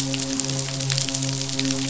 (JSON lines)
{"label": "biophony, midshipman", "recorder": "SoundTrap 500"}